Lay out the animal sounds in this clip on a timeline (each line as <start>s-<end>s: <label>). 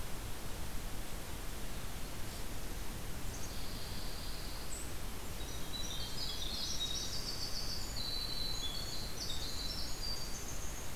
3.4s-4.8s: Pine Warbler (Setophaga pinus)
5.3s-7.3s: Golden-crowned Kinglet (Regulus satrapa)
5.4s-11.0s: Winter Wren (Troglodytes hiemalis)